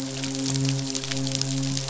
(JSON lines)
{"label": "biophony, midshipman", "recorder": "SoundTrap 500"}